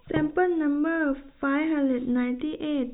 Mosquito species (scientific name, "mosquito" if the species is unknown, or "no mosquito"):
no mosquito